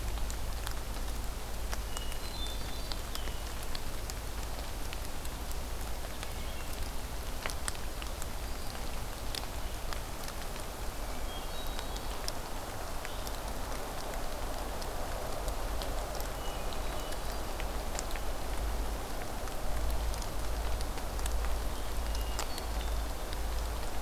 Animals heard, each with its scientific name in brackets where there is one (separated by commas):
Hermit Thrush (Catharus guttatus)